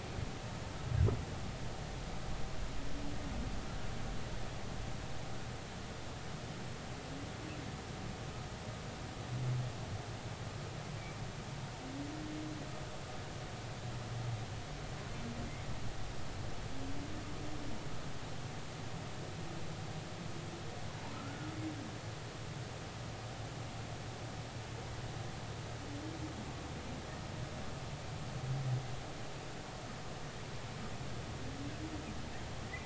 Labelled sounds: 21.1	21.5	humpback whale, 1.2 to 1.5 kHz

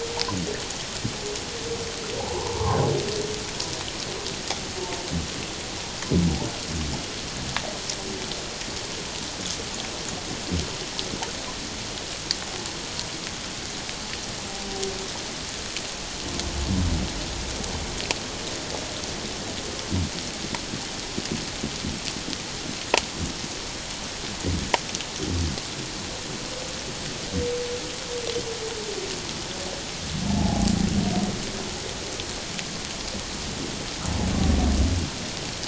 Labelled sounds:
2.2	2.8	humpback whale, 0.78 to 1.2 kHz
30.4	30.7	humpback whale, 0.78 to 0.91 kHz

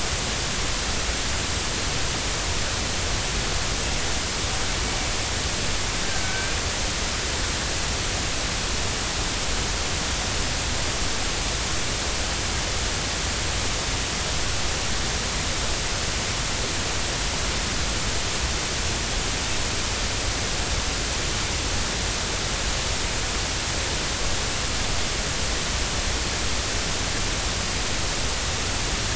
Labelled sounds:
6.2	6.6	killer whale, northern resident, G clan, 1.4 to 2.4 kHz

